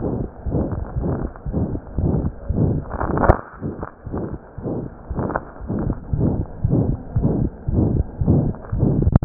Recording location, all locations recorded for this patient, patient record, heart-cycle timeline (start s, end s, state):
aortic valve (AV)
aortic valve (AV)+pulmonary valve (PV)+tricuspid valve (TV)+mitral valve (MV)
#Age: Child
#Sex: Male
#Height: nan
#Weight: nan
#Pregnancy status: False
#Murmur: Present
#Murmur locations: aortic valve (AV)+mitral valve (MV)+pulmonary valve (PV)+tricuspid valve (TV)
#Most audible location: tricuspid valve (TV)
#Systolic murmur timing: Holosystolic
#Systolic murmur shape: Diamond
#Systolic murmur grading: III/VI or higher
#Systolic murmur pitch: High
#Systolic murmur quality: Blowing
#Diastolic murmur timing: nan
#Diastolic murmur shape: nan
#Diastolic murmur grading: nan
#Diastolic murmur pitch: nan
#Diastolic murmur quality: nan
#Outcome: Abnormal
#Campaign: 2015 screening campaign
0.00	4.05	unannotated
4.05	4.12	S1
4.12	4.30	systole
4.30	4.38	S2
4.38	4.56	diastole
4.56	4.65	S1
4.65	4.82	systole
4.82	4.88	S2
4.88	5.08	diastole
5.08	5.18	S1
5.18	5.34	systole
5.34	5.44	S2
5.44	5.59	diastole
5.59	5.70	S1
5.70	5.84	systole
5.84	5.94	S2
5.94	6.11	diastole
6.11	6.20	S1
6.20	6.38	systole
6.38	6.47	S2
6.47	6.62	diastole
6.62	6.71	S1
6.71	6.90	systole
6.90	7.00	S2
7.00	7.13	diastole
7.13	7.23	S1
7.23	7.40	systole
7.40	7.52	S2
7.52	7.65	diastole
7.65	7.74	S1
7.74	7.96	systole
7.96	8.05	S2
8.05	8.19	diastole
8.19	8.27	S1
8.27	8.46	systole
8.46	8.54	S2
8.54	8.71	diastole
8.71	8.80	S1
8.80	9.04	systole
9.04	9.11	S2
9.11	9.25	unannotated